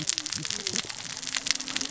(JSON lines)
{"label": "biophony, cascading saw", "recorder": "SoundTrap 600 or HydroMoth"}